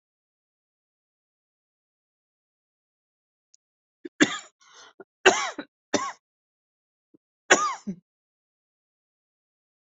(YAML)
expert_labels:
- quality: ok
  cough_type: dry
  dyspnea: false
  wheezing: false
  stridor: false
  choking: false
  congestion: false
  nothing: true
  diagnosis: COVID-19
  severity: mild
age: 46
gender: female
respiratory_condition: false
fever_muscle_pain: false
status: symptomatic